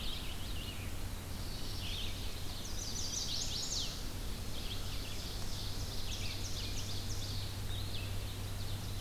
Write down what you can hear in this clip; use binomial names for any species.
Piranga olivacea, Vireo olivaceus, Setophaga caerulescens, Setophaga pensylvanica, Seiurus aurocapilla